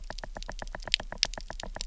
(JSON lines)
{"label": "biophony, knock", "recorder": "SoundTrap 300"}